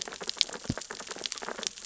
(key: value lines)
label: biophony, sea urchins (Echinidae)
recorder: SoundTrap 600 or HydroMoth